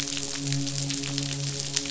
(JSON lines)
{"label": "biophony, midshipman", "recorder": "SoundTrap 500"}